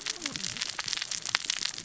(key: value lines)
label: biophony, cascading saw
recorder: SoundTrap 600 or HydroMoth